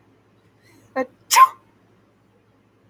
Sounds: Sneeze